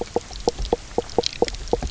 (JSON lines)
{"label": "biophony, knock croak", "recorder": "SoundTrap 300"}